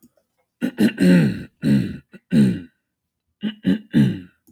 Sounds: Throat clearing